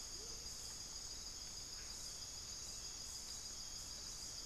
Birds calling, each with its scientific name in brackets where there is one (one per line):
Amazonian Motmot (Momotus momota)